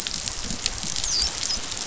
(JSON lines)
{"label": "biophony, dolphin", "recorder": "SoundTrap 500"}